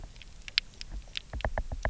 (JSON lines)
{"label": "biophony, knock", "recorder": "SoundTrap 300"}